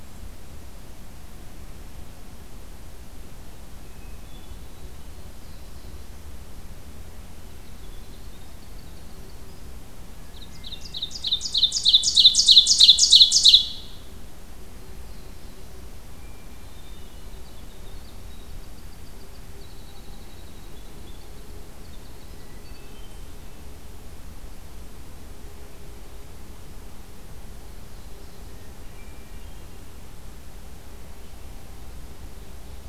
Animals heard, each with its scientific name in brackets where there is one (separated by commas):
Winter Wren (Troglodytes hiemalis), Ovenbird (Seiurus aurocapilla), Black-throated Blue Warbler (Setophaga caerulescens), Hermit Thrush (Catharus guttatus)